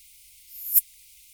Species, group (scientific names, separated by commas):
Poecilimon affinis, Orthoptera